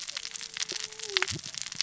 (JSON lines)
{"label": "biophony, cascading saw", "recorder": "SoundTrap 600 or HydroMoth"}